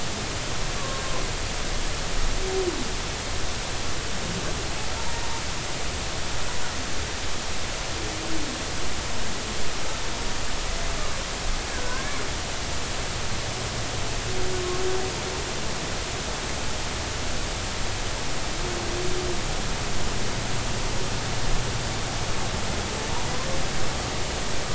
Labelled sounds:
0.8	1.0	humpback whale, 1.0 to 1.2 kHz
11.8	12.2	humpback whale, 1.4 to 1.8 kHz

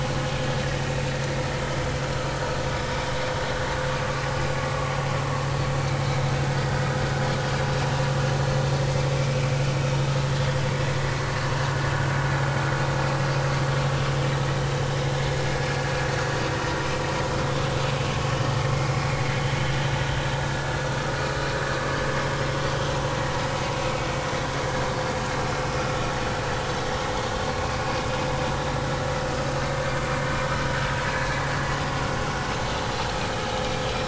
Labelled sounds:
6.4	6.7	vessel noise, 4.6 to 4.8 kHz
9.8	10.1	vessel noise, 3.6 to 3.7 kHz
18.7	19.0	vessel noise, 2.0 to 2.3 kHz
30.3	30.6	vessel noise, 5.1 to 5.3 kHz
31.1	31.4	vessel noise, 1.6 to 1.8 kHz

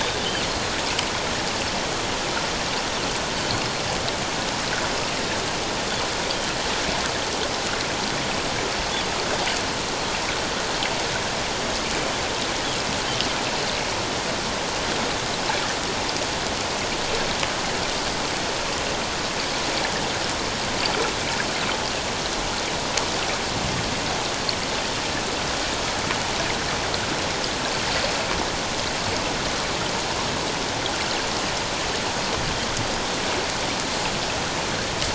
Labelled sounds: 0.0	0.7	Pacific white-sided dolphin, 2.9 to 4.3 kHz

